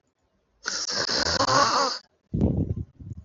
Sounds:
Throat clearing